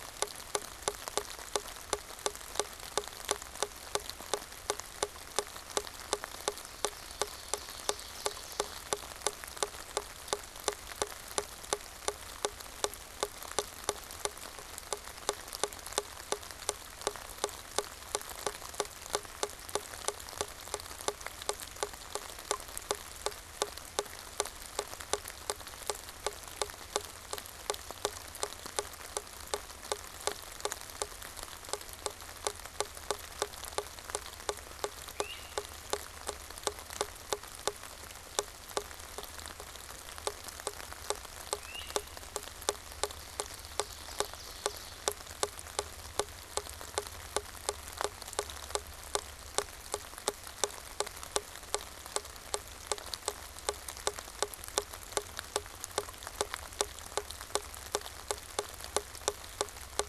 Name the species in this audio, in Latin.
Myiarchus crinitus, Seiurus aurocapilla